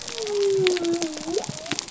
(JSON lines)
{"label": "biophony", "recorder": "SoundTrap 300"}